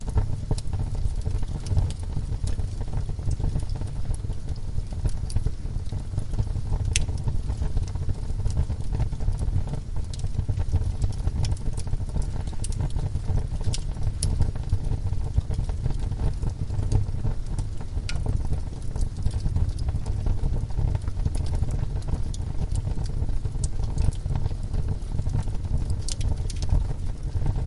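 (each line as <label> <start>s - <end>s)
A fire burns inside a fireplace. 0.0s - 27.7s
A fire crackles inside a fireplace. 0.0s - 27.7s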